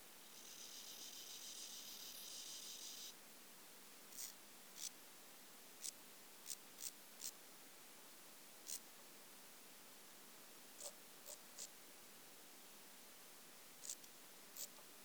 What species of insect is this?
Gomphocerippus rufus